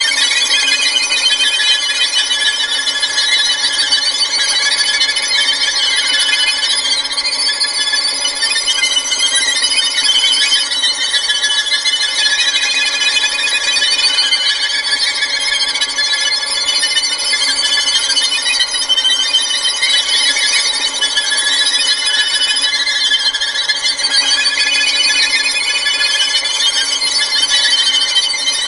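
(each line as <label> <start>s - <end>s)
Many violins playing simultaneously, sped up to sound scary. 0.0s - 28.7s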